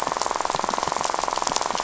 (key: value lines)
label: biophony, rattle
recorder: SoundTrap 500